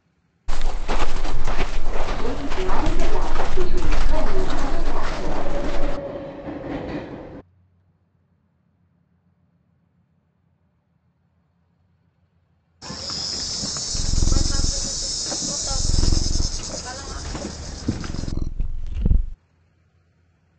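A faint continuous noise remains about 35 decibels below the sounds. At the start, someone walks. While that goes on, about 2 seconds in, a subway can be heard. Then about 13 seconds in, an insect is heard. Meanwhile, about 14 seconds in, a cat purrs.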